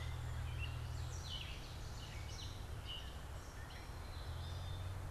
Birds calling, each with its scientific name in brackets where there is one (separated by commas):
Gray Catbird (Dumetella carolinensis), Ovenbird (Seiurus aurocapilla), Song Sparrow (Melospiza melodia)